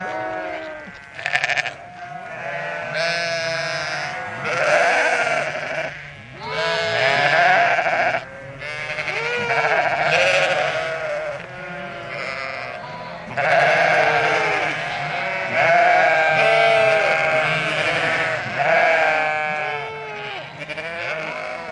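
A group of sheep bleats repeatedly. 0.0 - 21.7
A sheep bleats nearby. 1.2 - 1.9
A group of sheep bleating repeatedly nearby. 4.3 - 11.0
A group of sheep bleating repeatedly in the distance. 11.0 - 13.4
A group of sheep bleats repeatedly from a close distance. 13.3 - 20.1

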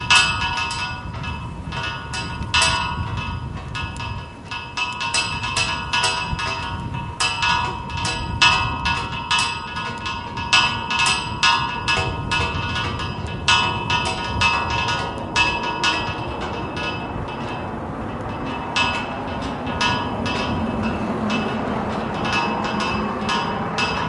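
A metallic bell-like sound repeats and gradually fades away. 0.0 - 24.1
Cars approach, their sounds echoing in the distance. 15.0 - 24.1

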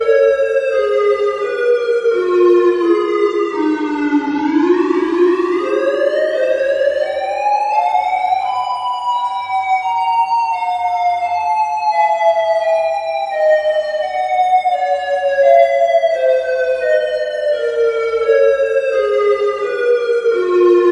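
A siren changes its pitch and volume periodically. 0.0 - 20.9

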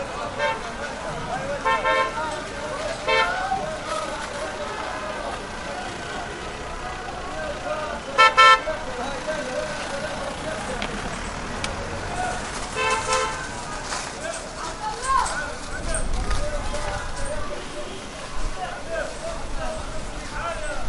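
People talking in a muffled and steady pattern in the distance. 0.0 - 20.9
A car horn honks loudly once in the distance. 0.3 - 0.6
A car horn honks loudly in a repeating pattern from a distance. 1.6 - 2.1
A car horn honks loudly once in the distance. 3.0 - 3.3
A car horn honks loudly in a repeating pattern from a distance. 8.1 - 8.6
A microphone clicks quietly in a repeating pattern outdoors. 10.7 - 11.7
A car horn honks loudly in a repeating pattern from a distance. 12.7 - 13.4
A woman is shouting loudly in a steady, distant pattern. 15.0 - 15.4
A car horn honks quietly in a repeating pattern in the distance. 15.8 - 18.6

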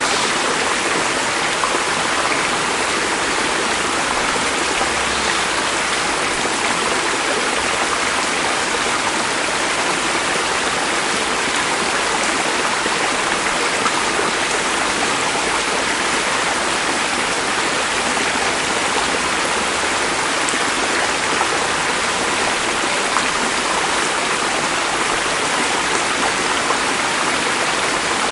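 A waterfall creates a constant, loud background noise that blends seamlessly and becomes indistinguishable as a distinct water sound. 0.1 - 28.2

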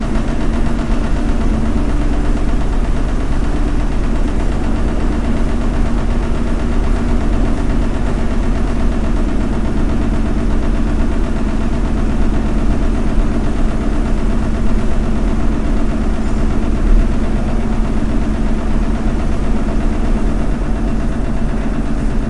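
A washing machine runs continuously while a fast, even knocking sound is heard. 0.0 - 22.3

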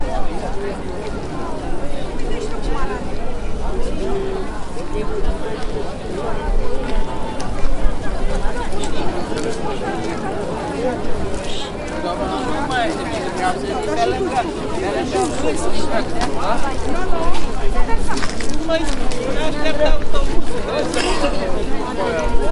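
People talking in the distance with volume slightly increasing. 0.0 - 22.5
Slow footsteps echoing. 6.6 - 22.0
A person coughs. 20.9 - 22.2

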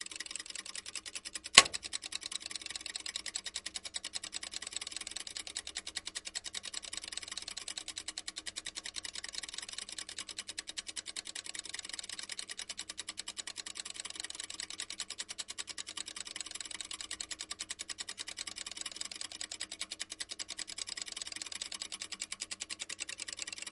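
Fast, repetitive clicking sound of a timer. 0.0 - 23.7

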